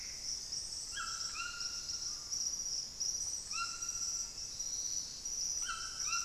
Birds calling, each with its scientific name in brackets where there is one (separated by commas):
Plumbeous Antbird (Myrmelastes hyperythrus), White-throated Toucan (Ramphastos tucanus)